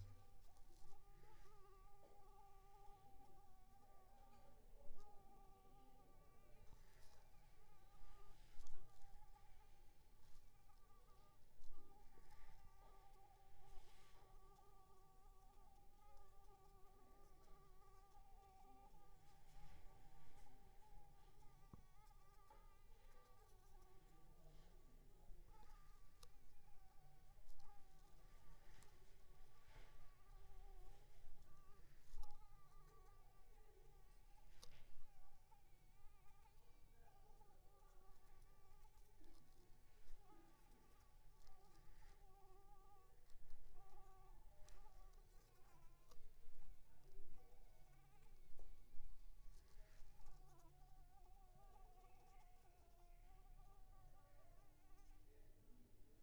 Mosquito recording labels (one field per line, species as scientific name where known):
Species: Anopheles arabiensis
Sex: female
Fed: unfed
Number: one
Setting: cup